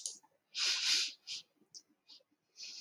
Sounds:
Sniff